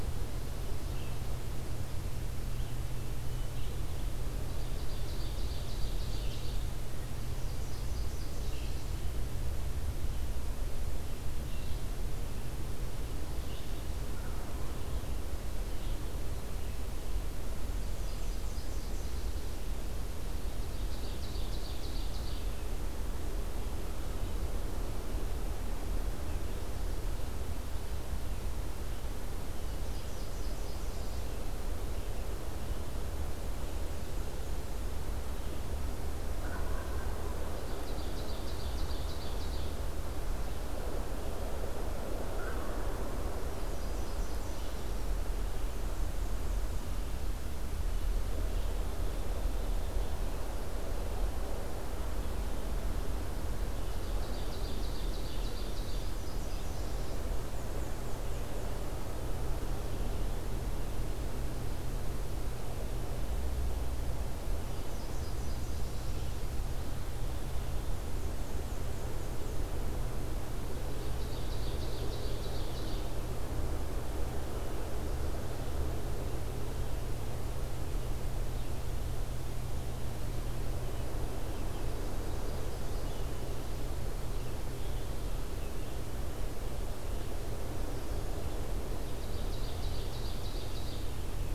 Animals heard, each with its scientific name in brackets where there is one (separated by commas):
Red-eyed Vireo (Vireo olivaceus), Wild Turkey (Meleagris gallopavo), Nashville Warbler (Leiothlypis ruficapilla), Black-and-white Warbler (Mniotilta varia), American Crow (Corvus brachyrhynchos), Ovenbird (Seiurus aurocapilla)